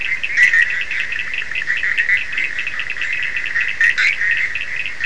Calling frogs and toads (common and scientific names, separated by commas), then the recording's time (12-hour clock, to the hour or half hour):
Bischoff's tree frog (Boana bischoffi), Cochran's lime tree frog (Sphaenorhynchus surdus)
~3am